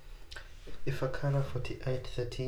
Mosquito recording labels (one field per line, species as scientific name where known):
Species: Anopheles arabiensis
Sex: female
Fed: unfed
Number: one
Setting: cup